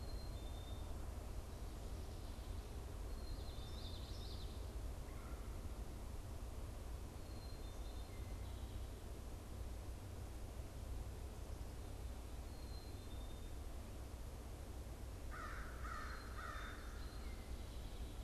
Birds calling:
American Crow (Corvus brachyrhynchos)
Black-capped Chickadee (Poecile atricapillus)
Red-bellied Woodpecker (Melanerpes carolinus)
Common Yellowthroat (Geothlypis trichas)

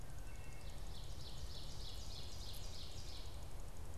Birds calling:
Wood Thrush (Hylocichla mustelina)
Ovenbird (Seiurus aurocapilla)

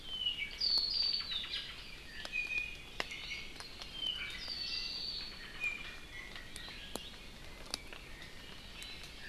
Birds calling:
Omao (Myadestes obscurus)
Iiwi (Drepanis coccinea)
Apapane (Himatione sanguinea)

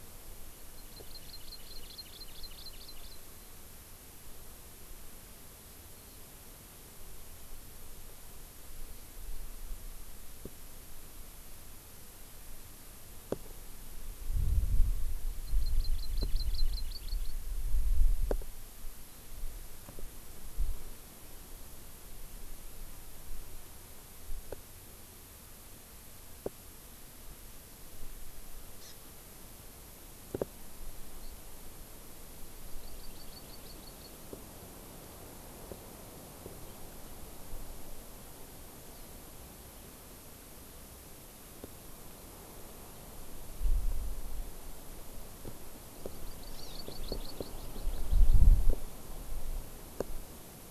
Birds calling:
Hawaii Amakihi (Chlorodrepanis virens)

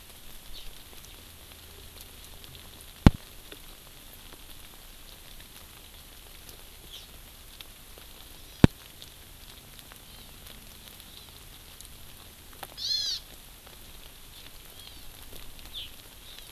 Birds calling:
Hawaii Amakihi (Chlorodrepanis virens)

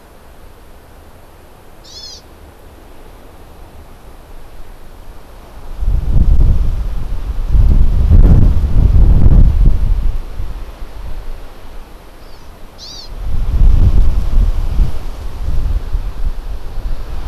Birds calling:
Hawaii Amakihi (Chlorodrepanis virens)

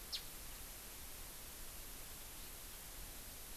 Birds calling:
Japanese Bush Warbler (Horornis diphone)

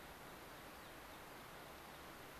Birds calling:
American Pipit (Anthus rubescens)

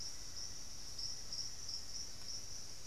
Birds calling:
Black-faced Antthrush (Formicarius analis)

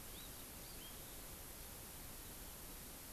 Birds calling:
Hawaii Amakihi (Chlorodrepanis virens)

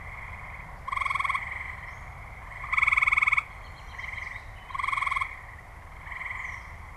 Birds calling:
American Robin (Turdus migratorius)
Gray Catbird (Dumetella carolinensis)

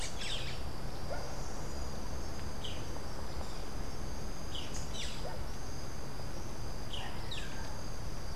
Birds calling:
Rufous-capped Warbler (Basileuterus rufifrons)
Boat-billed Flycatcher (Megarynchus pitangua)

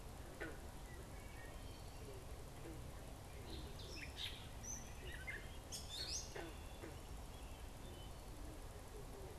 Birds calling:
Wood Thrush (Hylocichla mustelina)
Gray Catbird (Dumetella carolinensis)

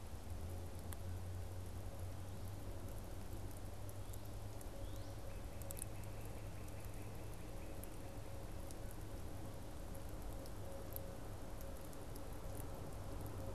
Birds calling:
Northern Cardinal (Cardinalis cardinalis)

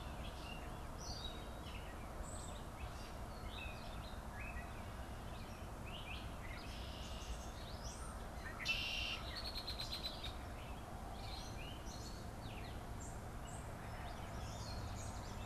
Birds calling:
Red-winged Blackbird (Agelaius phoeniceus)
Gray Catbird (Dumetella carolinensis)
Yellow Warbler (Setophaga petechia)
Red-eyed Vireo (Vireo olivaceus)

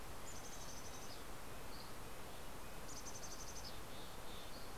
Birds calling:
Red-breasted Nuthatch (Sitta canadensis)
Dusky Flycatcher (Empidonax oberholseri)
Mountain Chickadee (Poecile gambeli)

